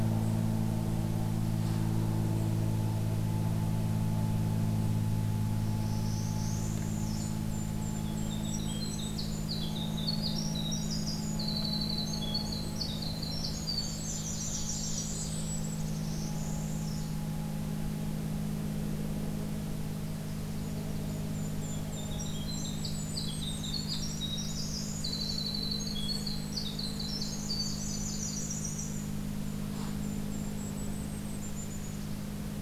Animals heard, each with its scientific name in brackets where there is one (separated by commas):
Northern Parula (Setophaga americana), Golden-crowned Kinglet (Regulus satrapa), Blackburnian Warbler (Setophaga fusca), Winter Wren (Troglodytes hiemalis)